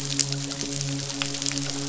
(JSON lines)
{"label": "biophony, midshipman", "recorder": "SoundTrap 500"}